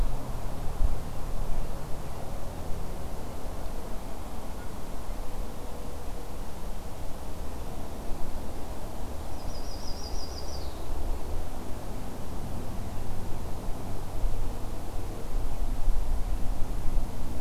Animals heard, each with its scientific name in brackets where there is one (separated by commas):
Yellow-rumped Warbler (Setophaga coronata)